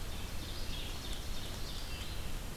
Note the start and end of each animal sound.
[0.00, 2.01] Ovenbird (Seiurus aurocapilla)
[0.00, 2.57] Red-eyed Vireo (Vireo olivaceus)

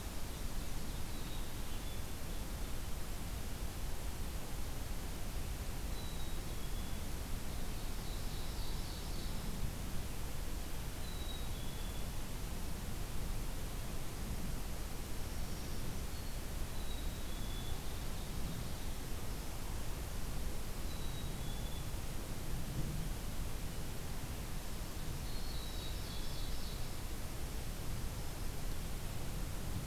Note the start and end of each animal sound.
[0.00, 1.39] Ovenbird (Seiurus aurocapilla)
[1.08, 2.07] Black-capped Chickadee (Poecile atricapillus)
[5.87, 7.15] Black-capped Chickadee (Poecile atricapillus)
[7.53, 9.49] Ovenbird (Seiurus aurocapilla)
[10.95, 12.18] Black-capped Chickadee (Poecile atricapillus)
[15.07, 16.55] Black-throated Green Warbler (Setophaga virens)
[16.74, 17.79] Black-capped Chickadee (Poecile atricapillus)
[17.37, 18.99] Ovenbird (Seiurus aurocapilla)
[20.84, 21.97] Black-capped Chickadee (Poecile atricapillus)
[25.16, 27.01] Ovenbird (Seiurus aurocapilla)
[25.36, 26.52] Black-capped Chickadee (Poecile atricapillus)

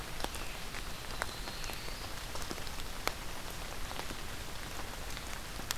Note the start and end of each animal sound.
[0.84, 2.17] Yellow-rumped Warbler (Setophaga coronata)

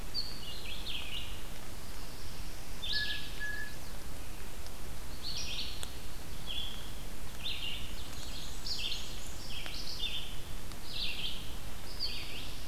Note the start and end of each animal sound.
[0.00, 12.68] Red-eyed Vireo (Vireo olivaceus)
[2.83, 3.75] Blue Jay (Cyanocitta cristata)
[2.95, 4.07] Chestnut-sided Warbler (Setophaga pensylvanica)
[8.02, 9.65] Black-and-white Warbler (Mniotilta varia)

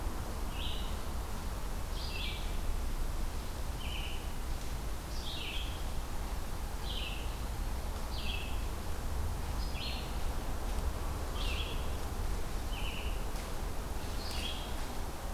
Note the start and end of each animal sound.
[0.00, 4.34] Red-eyed Vireo (Vireo olivaceus)
[4.98, 14.89] Red-eyed Vireo (Vireo olivaceus)
[6.81, 8.02] Eastern Wood-Pewee (Contopus virens)

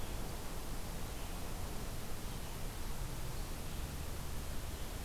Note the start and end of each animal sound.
[0.00, 5.05] Red-eyed Vireo (Vireo olivaceus)

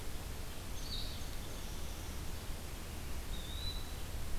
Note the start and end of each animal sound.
[0.00, 4.39] Red-eyed Vireo (Vireo olivaceus)
[3.08, 4.01] Eastern Wood-Pewee (Contopus virens)

